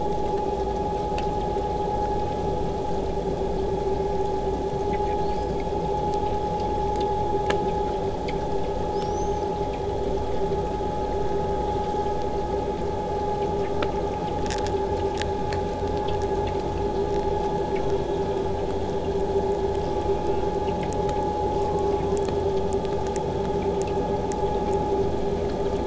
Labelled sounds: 0.0	5.0	vessel noise, 0 to 8.0 kHz
5.2	5.5	killer whale, southern resident, 3.7 to 8.0 kHz
8.9	9.5	killer whale, southern resident, 3.9 to 8.0 kHz
19.8	20.5	killer whale, southern resident, J pod, call S04, 0.93 to 8.0 kHz

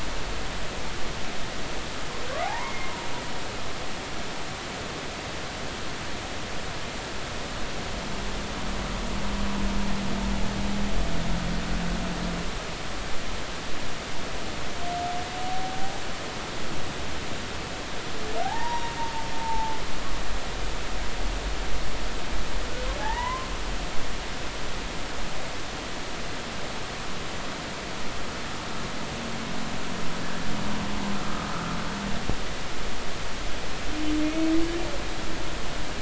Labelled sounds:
2.4	3.0	humpback whale, 0.80 to 2.2 kHz
18.4	19.8	humpback whale, 0.80 to 1.9 kHz
23.0	23.5	humpback whale, 0.80 to 2.1 kHz
31.2	31.5	humpback whale, 1.2 to 1.4 kHz

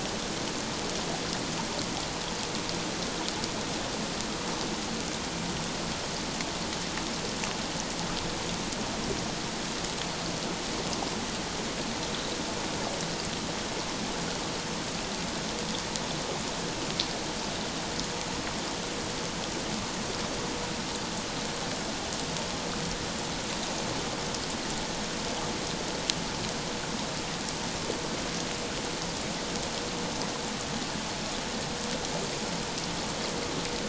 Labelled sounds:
12.1	12.4	water noise, 3.8 to 4.1 kHz

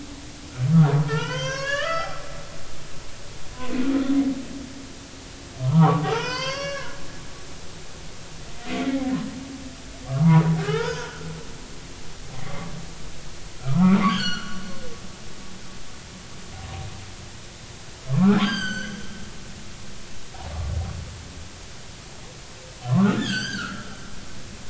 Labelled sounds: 0.9	2.1	humpback whale, 0.86 to 6.4 kHz
3.5	3.7	humpback whale, 0.96 to 1.1 kHz
5.6	7.0	humpback whale, 0.80 to 6.4 kHz
7.2	9.0	humpback whale, 1.9 to 4.8 kHz
10.1	11.3	humpback whale, 0.80 to 5.3 kHz
12.4	12.7	humpback whale, 1.0 to 2.1 kHz
13.6	14.6	humpback whale, 0.86 to 6.0 kHz
18.1	19.0	humpback whale, 0.86 to 7.9 kHz
22.9	23.9	humpback whale, 0.99 to 6.8 kHz

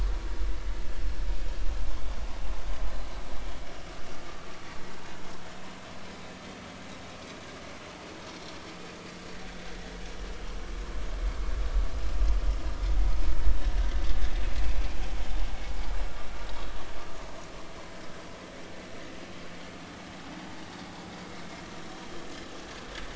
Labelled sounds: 8.3	8.6	vessel noise, 5.3 to 5.7 kHz

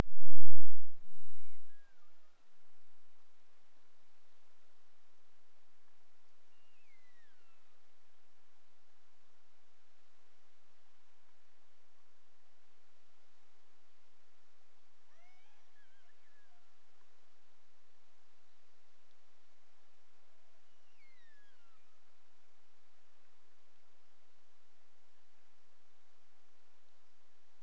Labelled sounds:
1.3	2.2	killer whale, Bigg's (transient), Gulf of Alaska transient, 1.1 to 3.0 kHz
6.5	7.8	killer whale, Bigg's (transient), Gulf of Alaska transient, 1.1 to 6.2 kHz
15.0	16.7	killer whale, Bigg's (transient), Gulf of Alaska transient, 0.32 to 6.0 kHz
20.7	22.1	killer whale, Bigg's (transient), Gulf of Alaska transient, 1.1 to 6.4 kHz

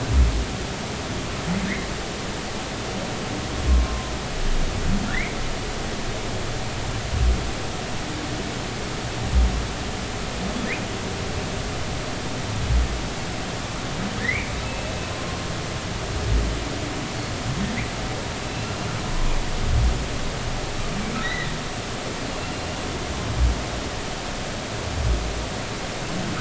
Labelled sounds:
3.7	4.1	humpback whale, 0.99 to 1.1 kHz
5.0	5.4	humpback whale, 1.7 to 2.4 kHz
14.2	14.9	humpback whale, 1.6 to 2.7 kHz
18.5	18.7	humpback whale, 2.6 to 2.8 kHz
21.2	21.5	humpback whale, 1.8 to 4.1 kHz
22.3	22.6	humpback whale, 2.7 to 2.8 kHz

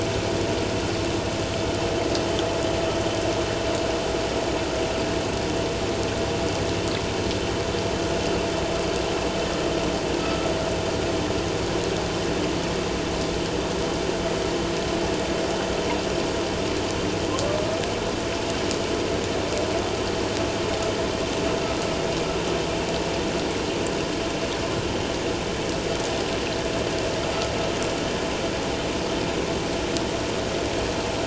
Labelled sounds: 10.2	10.5	vessel noise, 1.2 to 1.4 kHz

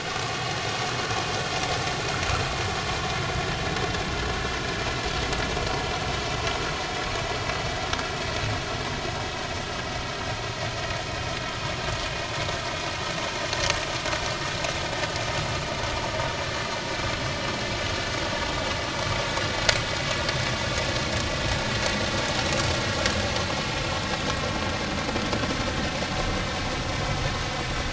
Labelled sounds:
17.0	17.2	vessel noise, 5.2 to 5.3 kHz

